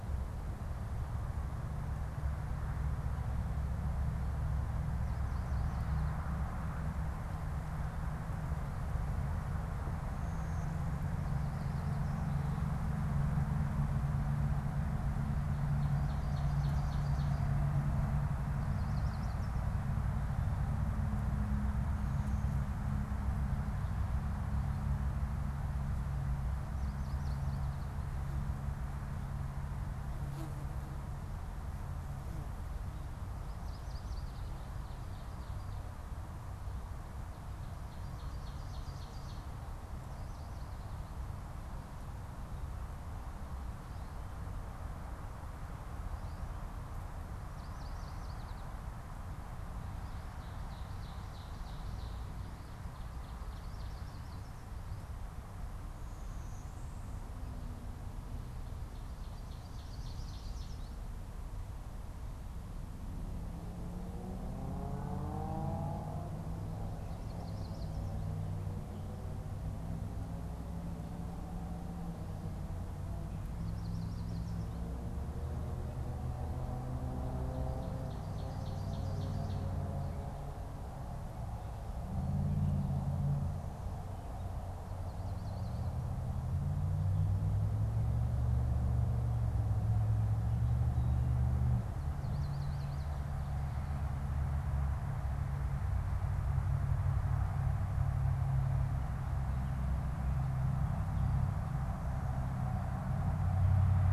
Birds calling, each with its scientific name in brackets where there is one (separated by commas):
Ovenbird (Seiurus aurocapilla), Blue-winged Warbler (Vermivora cyanoptera), Yellow Warbler (Setophaga petechia)